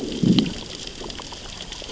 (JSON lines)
{"label": "biophony, growl", "recorder": "SoundTrap 600 or HydroMoth"}